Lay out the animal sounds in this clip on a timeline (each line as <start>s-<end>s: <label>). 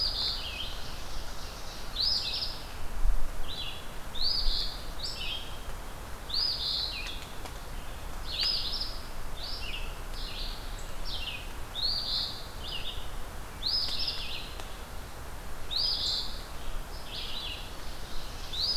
0.0s-0.7s: Eastern Phoebe (Sayornis phoebe)
0.0s-18.8s: Red-eyed Vireo (Vireo olivaceus)
0.3s-1.9s: Ovenbird (Seiurus aurocapilla)
1.9s-2.7s: Eastern Phoebe (Sayornis phoebe)
4.1s-4.9s: Eastern Phoebe (Sayornis phoebe)
6.2s-7.1s: Eastern Phoebe (Sayornis phoebe)
8.2s-9.1s: Eastern Phoebe (Sayornis phoebe)
11.7s-12.5s: Eastern Phoebe (Sayornis phoebe)
13.6s-14.4s: Eastern Phoebe (Sayornis phoebe)
15.7s-16.5s: Eastern Phoebe (Sayornis phoebe)
17.7s-18.8s: Ovenbird (Seiurus aurocapilla)